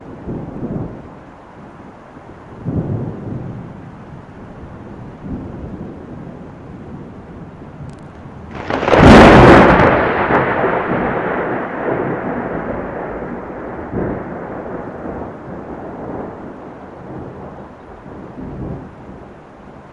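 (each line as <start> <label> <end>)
0.0 Thunderstorm quietly rumbles in the distance. 19.9
8.6 Thunder rumbles loudly in the distance. 14.4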